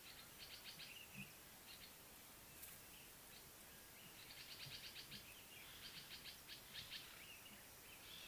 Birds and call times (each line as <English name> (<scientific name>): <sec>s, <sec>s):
Common Bulbul (Pycnonotus barbatus): 6.2s